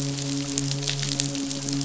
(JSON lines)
{"label": "biophony, midshipman", "recorder": "SoundTrap 500"}